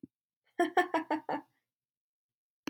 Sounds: Laughter